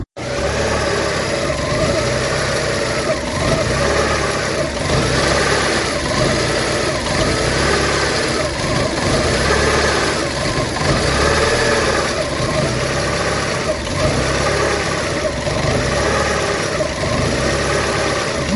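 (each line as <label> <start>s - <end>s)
Many periodic cycles of a small motor operating. 0.0s - 18.6s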